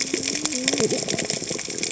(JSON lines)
{"label": "biophony, cascading saw", "recorder": "HydroMoth"}